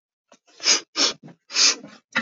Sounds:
Sniff